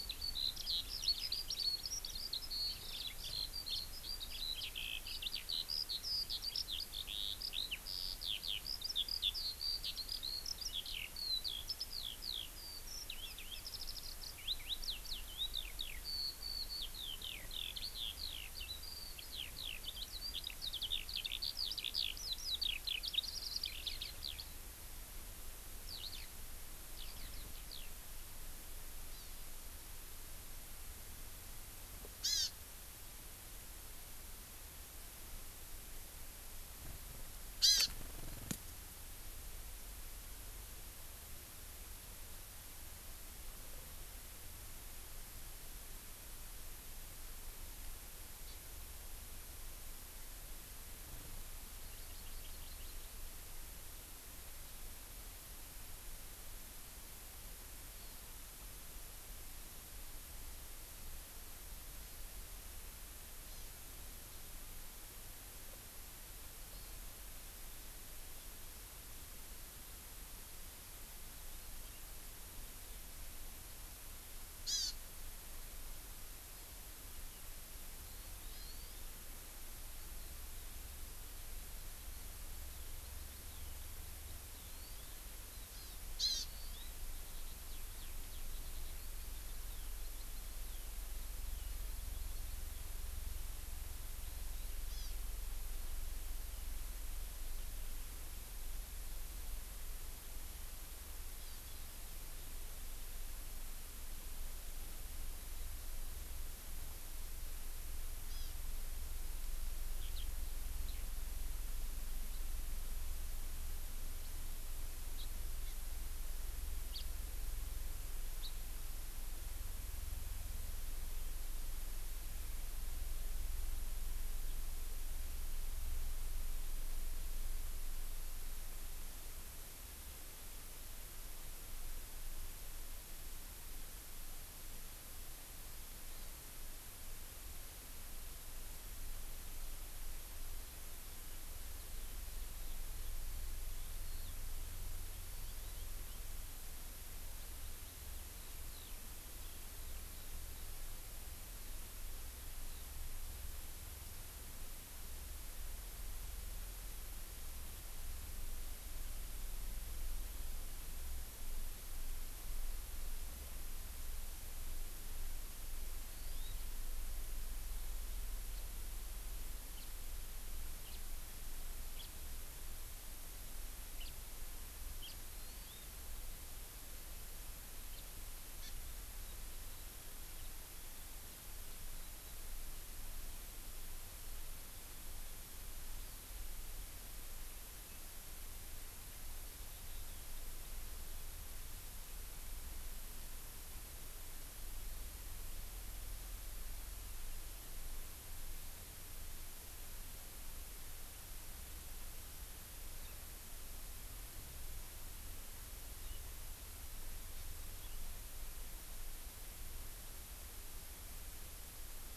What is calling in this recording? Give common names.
Eurasian Skylark, Hawaii Amakihi, House Finch